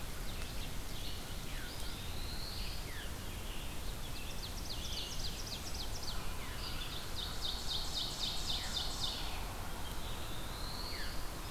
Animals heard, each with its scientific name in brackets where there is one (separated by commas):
Red-eyed Vireo (Vireo olivaceus), Veery (Catharus fuscescens), Black-throated Blue Warbler (Setophaga caerulescens), Scarlet Tanager (Piranga olivacea), Ovenbird (Seiurus aurocapilla)